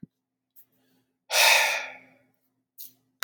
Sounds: Sigh